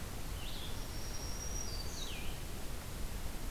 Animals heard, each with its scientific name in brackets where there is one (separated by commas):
Blue-headed Vireo (Vireo solitarius), Black-throated Green Warbler (Setophaga virens)